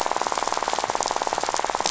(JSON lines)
{"label": "biophony, rattle", "recorder": "SoundTrap 500"}